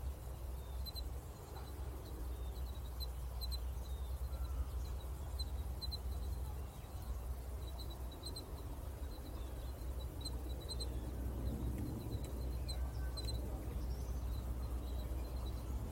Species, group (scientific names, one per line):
Ornebius aperta
Orthoptera